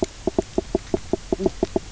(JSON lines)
{"label": "biophony, knock croak", "recorder": "SoundTrap 300"}